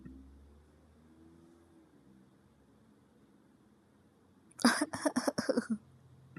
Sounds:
Cough